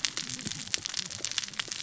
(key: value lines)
label: biophony, cascading saw
recorder: SoundTrap 600 or HydroMoth